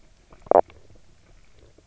{"label": "biophony, knock croak", "recorder": "SoundTrap 300"}
{"label": "biophony, stridulation", "recorder": "SoundTrap 300"}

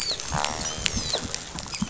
{"label": "biophony, dolphin", "recorder": "SoundTrap 500"}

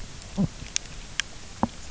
{"label": "biophony", "recorder": "SoundTrap 300"}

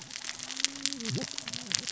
{"label": "biophony, cascading saw", "recorder": "SoundTrap 600 or HydroMoth"}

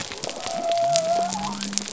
{"label": "biophony", "recorder": "SoundTrap 300"}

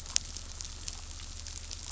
{"label": "anthrophony, boat engine", "recorder": "SoundTrap 500"}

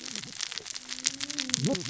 {"label": "biophony, cascading saw", "recorder": "SoundTrap 600 or HydroMoth"}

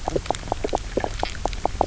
{"label": "biophony, knock croak", "recorder": "SoundTrap 300"}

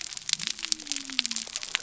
{"label": "biophony", "recorder": "SoundTrap 300"}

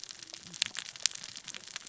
{"label": "biophony, cascading saw", "recorder": "SoundTrap 600 or HydroMoth"}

